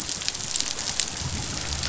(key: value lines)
label: biophony, growl
recorder: SoundTrap 500